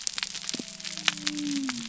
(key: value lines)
label: biophony
recorder: SoundTrap 300